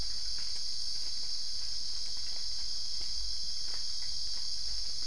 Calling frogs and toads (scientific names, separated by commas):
none